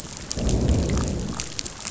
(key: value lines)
label: biophony, growl
recorder: SoundTrap 500